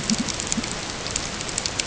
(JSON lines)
{"label": "ambient", "recorder": "HydroMoth"}